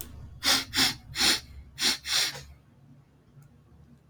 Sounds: Sniff